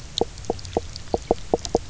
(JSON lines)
{"label": "biophony, knock croak", "recorder": "SoundTrap 300"}